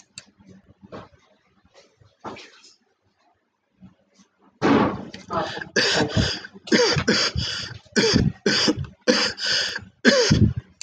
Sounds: Cough